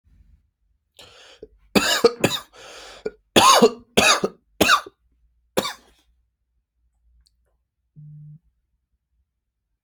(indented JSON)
{
  "expert_labels": [
    {
      "quality": "ok",
      "cough_type": "dry",
      "dyspnea": false,
      "wheezing": false,
      "stridor": false,
      "choking": false,
      "congestion": false,
      "nothing": true,
      "diagnosis": "lower respiratory tract infection",
      "severity": "mild"
    }
  ],
  "age": 30,
  "gender": "male",
  "respiratory_condition": false,
  "fever_muscle_pain": false,
  "status": "symptomatic"
}